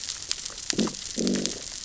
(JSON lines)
{"label": "biophony, growl", "recorder": "SoundTrap 600 or HydroMoth"}